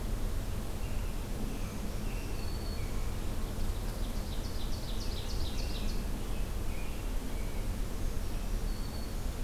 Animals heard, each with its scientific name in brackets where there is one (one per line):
American Robin (Turdus migratorius)
Black-throated Green Warbler (Setophaga virens)
Ovenbird (Seiurus aurocapilla)